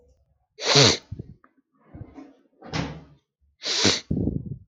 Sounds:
Sneeze